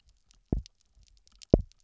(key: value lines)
label: biophony, double pulse
recorder: SoundTrap 300